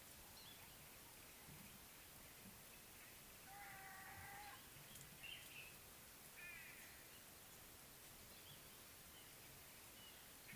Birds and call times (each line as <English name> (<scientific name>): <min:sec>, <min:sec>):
White-bellied Go-away-bird (Corythaixoides leucogaster): 0:06.5